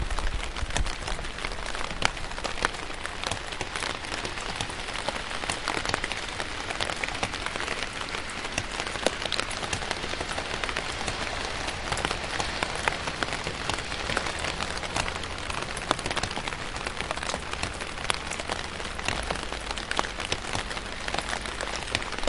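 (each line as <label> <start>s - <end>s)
Raindrops fall lightly on an umbrella. 0.0s - 22.3s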